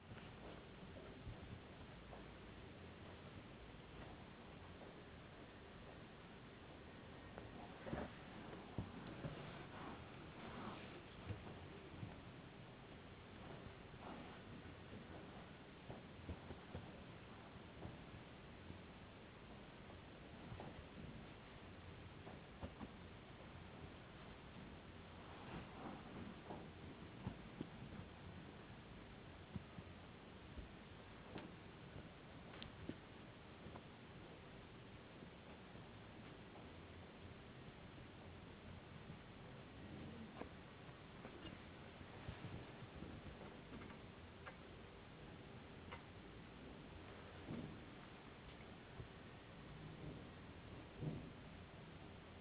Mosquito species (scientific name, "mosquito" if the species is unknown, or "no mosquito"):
no mosquito